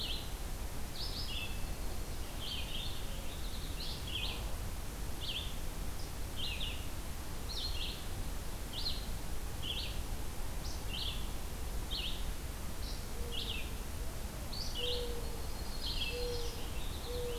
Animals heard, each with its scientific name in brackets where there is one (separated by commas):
Mourning Dove (Zenaida macroura), Yellow-rumped Warbler (Setophaga coronata), Red-eyed Vireo (Vireo olivaceus), Purple Finch (Haemorhous purpureus)